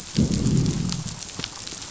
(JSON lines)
{"label": "biophony, growl", "recorder": "SoundTrap 500"}